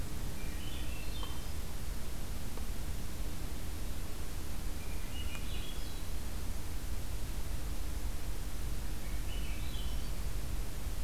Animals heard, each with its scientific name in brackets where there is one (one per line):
Swainson's Thrush (Catharus ustulatus)